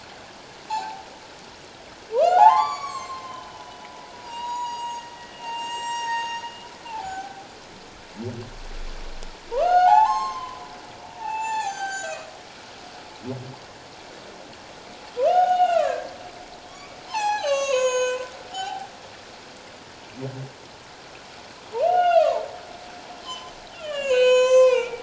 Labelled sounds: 0.7	1.0	humpback whale, 0.78 to 0.97 kHz
2.1	7.4	humpback whale, 0.78 to 8.0 kHz
9.5	10.6	humpback whale, 0.78 to 7.5 kHz
11.1	12.3	humpback whale, 0.78 to 8.0 kHz
15.2	16.1	humpback whale, 0.78 to 6.7 kHz
16.7	18.9	humpback whale, 0.78 to 8.0 kHz
21.8	22.4	humpback whale, 0.81 to 3.7 kHz
23.2	25.0	humpback whale, 0.81 to 7.9 kHz

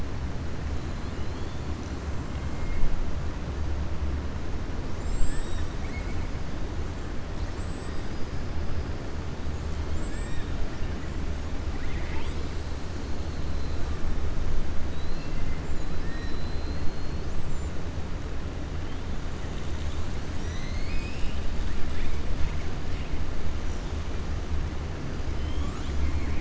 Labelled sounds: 0.8	1.6	killer whale, 2.9 to 4.7 kHz
7.8	8.3	killer whale, southern resident, 4.6 to 5.5 kHz
11.7	12.6	killer whale, southern resident, 0.92 to 7.9 kHz
14.8	15.5	killer whale, southern resident, 2.0 to 5.4 kHz
15.9	17.2	killer whale, southern resident, 1.3 to 5.7 kHz

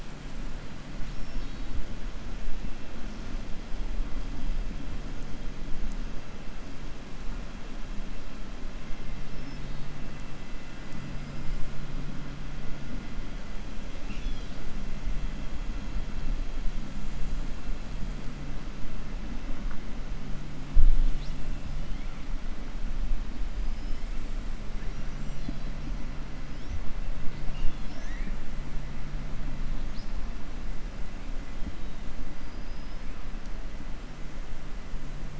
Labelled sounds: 1.0	1.7	killer whale, 2.7 to 5.6 kHz
14.0	14.6	killer whale, 2.3 to 6.6 kHz
23.6	24.0	killer whale, 4.8 to 5.4 kHz
27.4	28.4	killer whale, 0.93 to 6.9 kHz

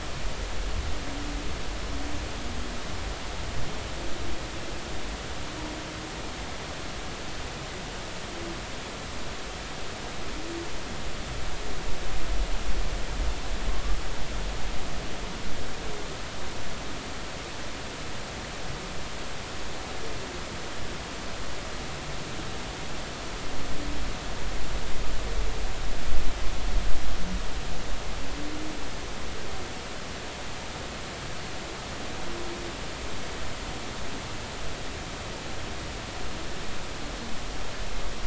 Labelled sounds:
13.7	14.0	humpback whale, 1.0 to 1.2 kHz

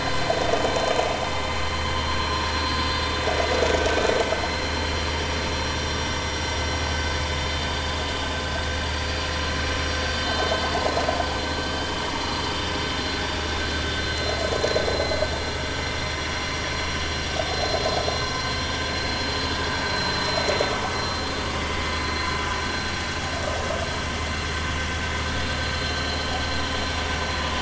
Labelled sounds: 1.9	3.0	vessel noise, 4.1 to 4.8 kHz
4.5	4.9	vessel noise, 4.1 to 4.2 kHz
14.1	14.4	vessel noise, 4.0 to 4.2 kHz
17.5	17.8	vessel noise, 4.1 to 4.2 kHz
19.8	20.2	vessel noise, 4.0 to 4.1 kHz

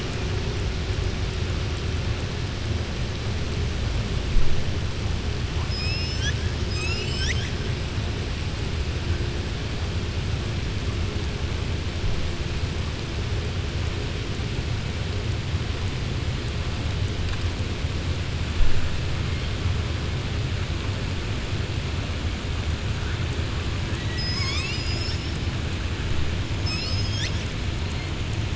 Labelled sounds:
23.9	25.4	killer whale, southern resident, 1.1 to 7.9 kHz

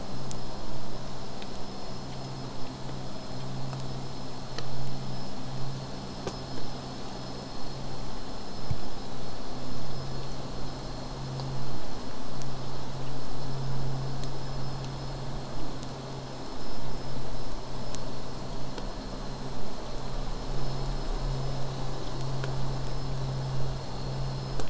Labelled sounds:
18.5	23.5	vessel noise, 0 to 8.0 kHz

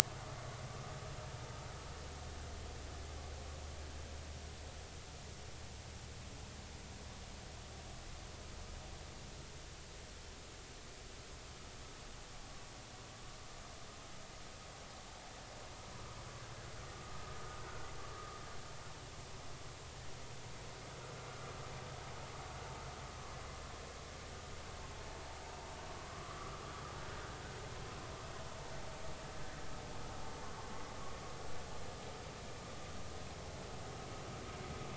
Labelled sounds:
17.6	18.4	vessel noise, 1.1 to 1.6 kHz
26.1	26.6	vessel noise, 0.99 to 1.4 kHz

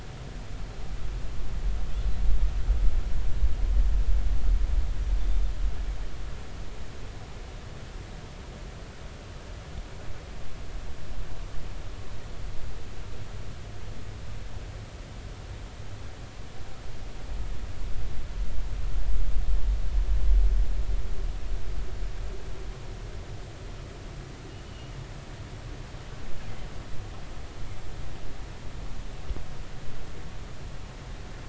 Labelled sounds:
24.7	24.9	killer whale, northern resident, 2.8 to 3.0 kHz

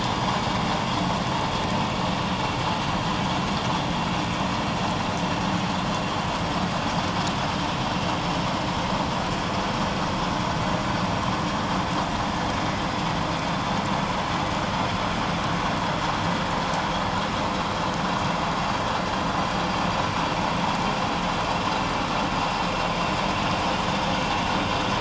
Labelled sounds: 8.2	8.5	vessel noise, 5.3 to 5.4 kHz

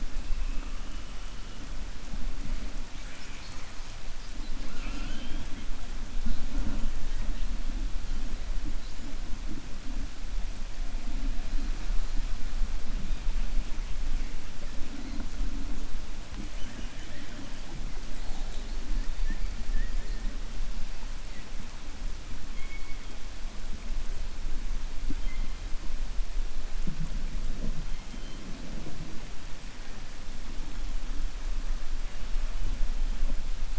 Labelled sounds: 16.5	17.5	killer whale, 0.62 to 3.4 kHz

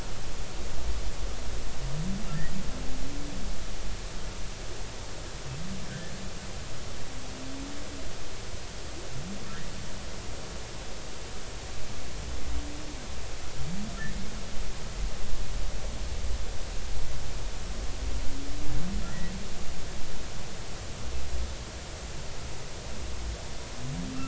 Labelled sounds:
19.0	19.3	humpback whale, 1.6 to 2.0 kHz

